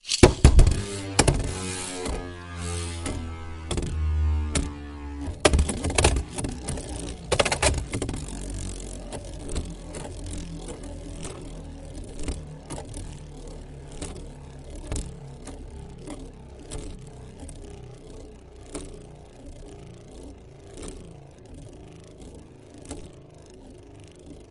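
A rhythmic, uneven tapping as a spinning object intermittently scrapes the surface, gradually fading. 0.0 - 24.5

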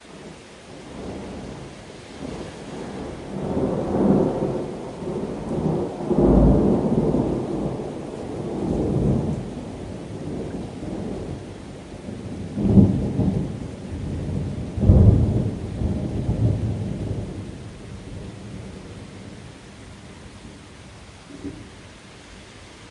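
Thunder rumbles in the distance. 0.1 - 6.0
A thunder growls powerfully. 6.0 - 9.4
Storm sounds rushing through the woods. 9.4 - 12.6
A thunder rumbles powerfully. 12.6 - 14.8
Thunder growls loudly. 14.8 - 19.1
A storm is rushing through the forest. 19.1 - 22.9

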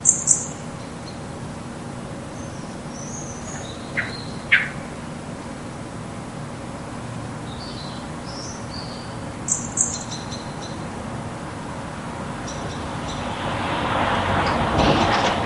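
A bird chirps sharply, clearly, and piercingly outside repeatedly. 0.0 - 0.4
Several birds chirp repeatedly in the distance. 0.0 - 15.4
A wind blows silently and continuously. 0.0 - 15.5
A bird chirps twice. 3.9 - 4.7
A bird chirps sharply, clearly, and piercingly outside repeatedly. 9.5 - 10.0
Vehicle sound gradually becomes louder. 13.5 - 15.5
A dull, brassy bang sounds abruptly. 14.7 - 15.1

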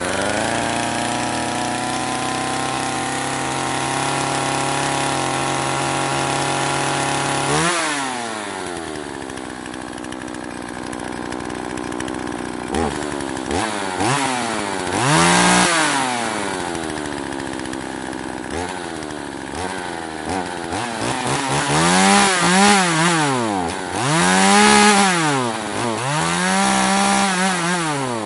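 A chainsaw produces fluctuating engine sounds, ranging from low idling rumbles to high-pitched revs and harsh sawing noises. 0.0 - 28.3

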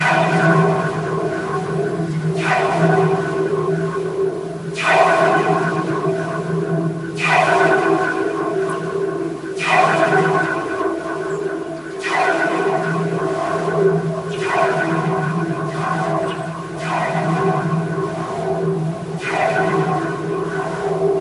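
Stretched metal rope shaking. 0.0 - 2.3
Metal rope is struck. 2.3 - 2.6
Rising and fading metallic shivering of a rope. 2.6 - 4.7
Metal rope being struck. 4.7 - 5.1
A very stretched metal rope is being struck repeatedly, producing an echoing metallic humming. 5.1 - 21.2

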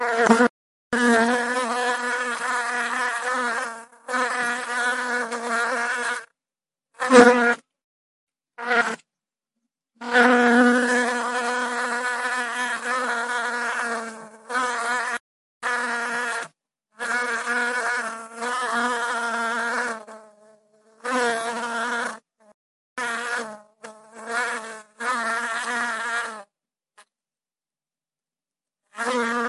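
A bee flies close to the microphone, producing a high-pitched, fluctuating buzzing sound that moves in and out of proximity. 0.2 - 29.5

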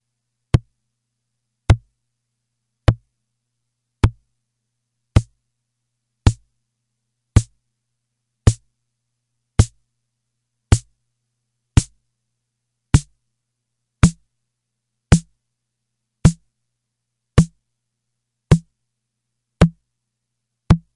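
A steady watch tick merges with a rhythmic musical beat resembling an analog drum machine’s snare drum. 0.1 - 21.0
An analog watch ticks repeatedly. 0.5 - 0.6
An analog watch ticks repeatedly. 1.6 - 1.8
An analog watch ticks repeatedly. 2.8 - 3.0
An analog watch ticks repeatedly. 4.0 - 4.1
An analog watch ticks rhythmically with a repetitive musical beat. 5.1 - 5.3
An analog watch ticks rhythmically with a repetitive musical beat. 6.3 - 6.4
An analog watch ticks rhythmically with a repetitive musical beat. 7.4 - 7.5
An analog watch ticks rhythmically with a repetitive musical beat. 8.4 - 8.6
An analog watch ticks rhythmically with a repetitive musical beat. 9.6 - 9.7
An analog watch ticks rhythmically with a repetitive musical beat. 10.7 - 10.8
An analog watch ticks rhythmically with a repetitive musical beat. 11.7 - 11.9
An analog watch ticks rhythmically with a repetitive musical beat. 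12.9 - 13.1
An analog watch ticks rhythmically with a repetitive musical beat. 14.0 - 14.2
An analog watch ticks rhythmically with a repetitive musical beat. 15.1 - 15.3
An analog watch ticks rhythmically with a repetitive musical beat. 16.2 - 16.4
An analog watch ticks rhythmically with a repetitive musical beat. 17.3 - 17.5
An analog watch ticks rhythmically with a repetitive musical beat. 18.4 - 18.6
An analog watch ticks rhythmically with a repetitive musical beat. 19.6 - 19.7
An analog watch ticks rhythmically with a repetitive musical beat. 20.7 - 20.8

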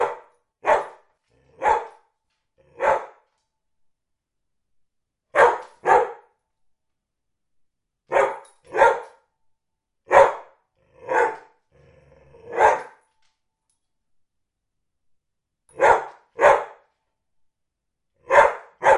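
A dog barks repeatedly indoors. 0.0 - 19.0

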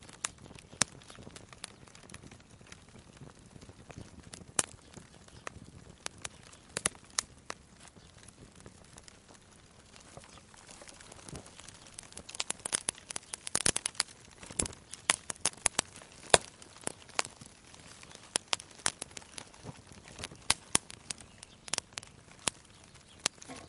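A fireplace crackles. 0.0 - 23.7

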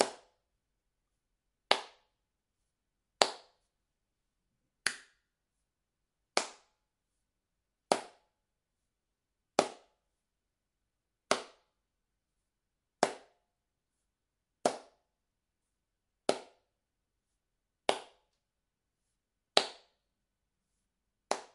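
A sudden loud clap inside a room with no echo. 0.0 - 0.3
A sudden loud clap inside a room with no echo. 1.6 - 2.1
A sudden loud clap inside a room with no echo. 3.2 - 3.6
A sudden loud clap inside a room with no echo. 4.8 - 5.2
A sudden loud clap inside a room with no echo. 6.3 - 6.7
A sudden loud clap inside a room with no echo. 7.8 - 8.1
A sudden loud clap inside a room with no echo. 9.5 - 9.9
A sudden loud clap inside a room with no echo. 11.2 - 11.7
A sudden loud clap inside a room with no echo. 13.0 - 13.4
A sudden loud clap inside a room with no echo. 14.6 - 14.9
A sudden loud clap inside a room with no echo. 16.2 - 16.6
A sudden loud clap inside a room with no echo. 17.8 - 18.3
A sudden loud clap inside a room with no echo. 19.5 - 19.9
A sudden loud clap inside a room with no echo. 21.2 - 21.5

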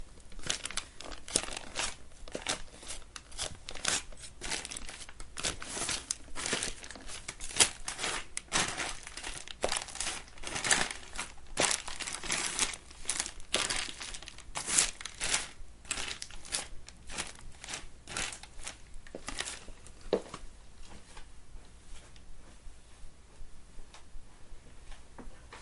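Footsteps on dry grass and leaves repeating periodically. 0.4 - 20.4

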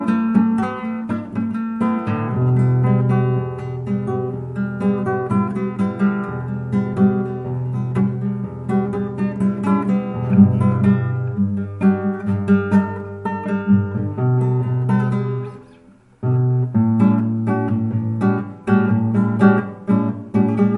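A clean guitar is being played with minimal reverb and good acoustics. 0.0 - 20.8

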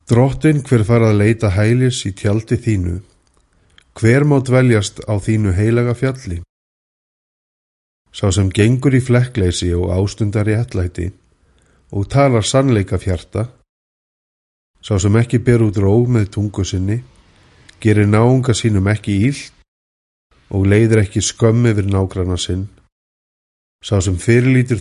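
A man is speaking in a foreign language. 0.0 - 3.1
A man is speaking in a foreign language. 3.8 - 6.6
A man is speaking in a foreign language. 8.1 - 11.1
A man is speaking in a foreign language. 11.8 - 13.6
A man is speaking in a foreign language. 14.8 - 19.7
A man is speaking in a foreign language. 20.4 - 22.8
A man is speaking in a foreign language. 23.8 - 24.8

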